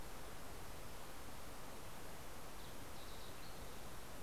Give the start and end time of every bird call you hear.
1.5s-4.2s: Green-tailed Towhee (Pipilo chlorurus)

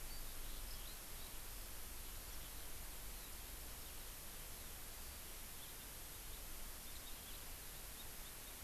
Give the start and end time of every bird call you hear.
0.0s-1.3s: Eurasian Skylark (Alauda arvensis)

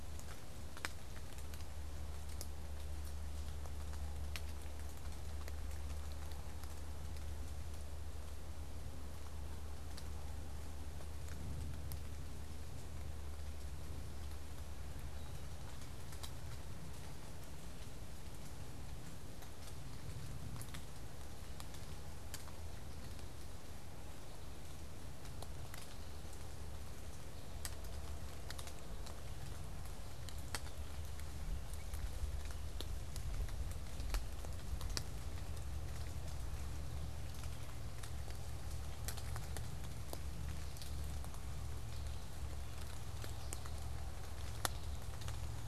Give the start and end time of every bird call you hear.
40.4s-45.7s: American Goldfinch (Spinus tristis)
45.1s-45.7s: Downy Woodpecker (Dryobates pubescens)

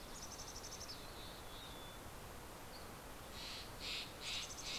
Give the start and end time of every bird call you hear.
0.0s-2.1s: Mountain Chickadee (Poecile gambeli)
2.4s-2.9s: Dusky Flycatcher (Empidonax oberholseri)
2.8s-4.8s: Steller's Jay (Cyanocitta stelleri)
4.0s-4.8s: Mountain Chickadee (Poecile gambeli)

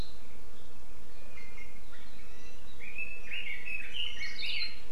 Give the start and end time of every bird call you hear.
1.3s-2.7s: Iiwi (Drepanis coccinea)
2.7s-4.7s: Red-billed Leiothrix (Leiothrix lutea)
4.1s-4.8s: Warbling White-eye (Zosterops japonicus)

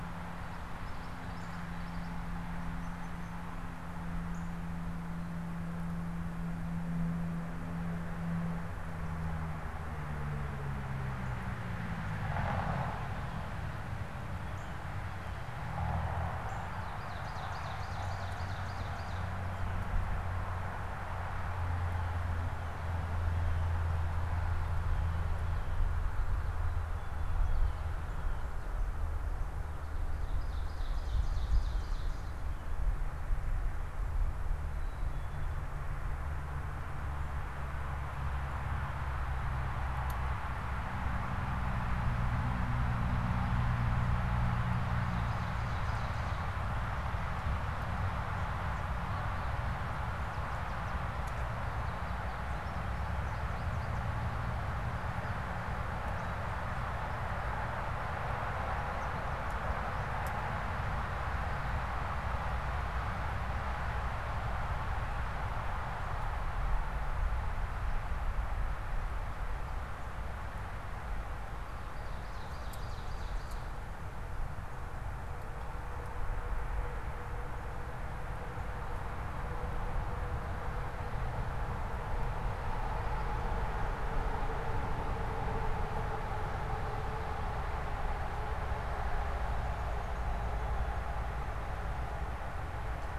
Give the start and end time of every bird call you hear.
0.7s-2.3s: Common Yellowthroat (Geothlypis trichas)
16.7s-19.4s: Ovenbird (Seiurus aurocapilla)
30.1s-32.3s: Ovenbird (Seiurus aurocapilla)
44.9s-46.7s: Ovenbird (Seiurus aurocapilla)
51.1s-59.9s: American Goldfinch (Spinus tristis)
71.9s-73.8s: Ovenbird (Seiurus aurocapilla)

